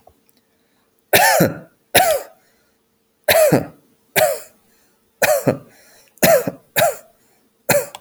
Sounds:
Cough